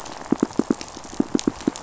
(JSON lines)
{"label": "biophony, pulse", "recorder": "SoundTrap 500"}